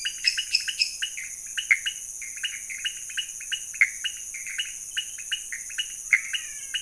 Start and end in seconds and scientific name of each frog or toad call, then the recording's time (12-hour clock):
0.0	1.1	Dendropsophus minutus
0.0	6.8	Leptodactylus podicipinus
0.0	6.8	Pithecopus azureus
5.9	6.8	Physalaemus albonotatus
2:15am